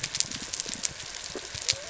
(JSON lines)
{"label": "biophony", "recorder": "SoundTrap 300"}